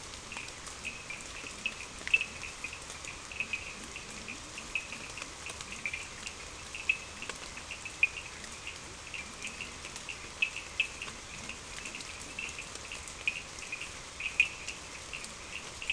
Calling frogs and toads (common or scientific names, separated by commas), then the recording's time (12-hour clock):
Cochran's lime tree frog, Leptodactylus latrans
4:30am